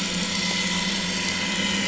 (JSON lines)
{"label": "anthrophony, boat engine", "recorder": "SoundTrap 500"}